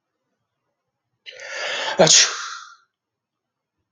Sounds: Sneeze